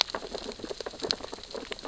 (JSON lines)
{"label": "biophony, sea urchins (Echinidae)", "recorder": "SoundTrap 600 or HydroMoth"}